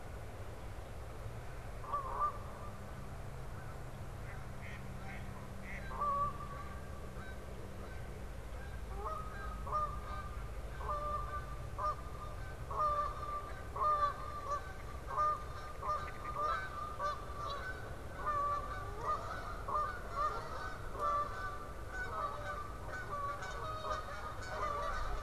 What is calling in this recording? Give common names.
Canada Goose, American Crow, Mallard